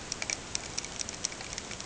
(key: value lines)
label: ambient
recorder: HydroMoth